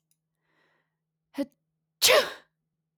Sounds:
Sneeze